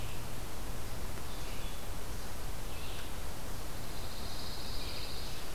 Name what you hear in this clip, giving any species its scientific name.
Vireo olivaceus, Setophaga pinus